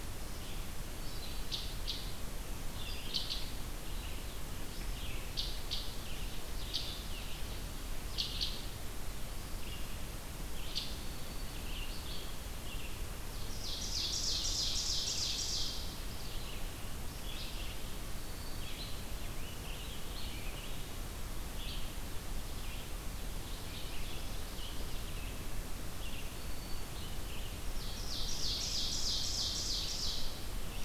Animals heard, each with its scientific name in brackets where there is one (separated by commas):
Black-throated Green Warbler (Setophaga virens), Red-eyed Vireo (Vireo olivaceus), Ovenbird (Seiurus aurocapilla), Rose-breasted Grosbeak (Pheucticus ludovicianus)